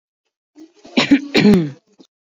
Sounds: Throat clearing